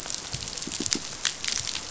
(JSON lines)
{"label": "biophony, pulse", "recorder": "SoundTrap 500"}